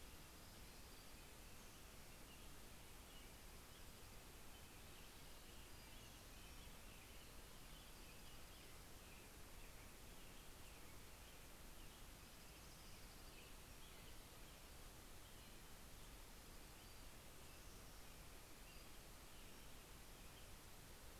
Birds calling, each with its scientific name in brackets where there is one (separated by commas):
Pacific-slope Flycatcher (Empidonax difficilis), Dark-eyed Junco (Junco hyemalis), American Robin (Turdus migratorius)